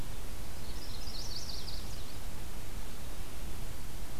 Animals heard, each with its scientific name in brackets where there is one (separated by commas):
Chestnut-sided Warbler (Setophaga pensylvanica)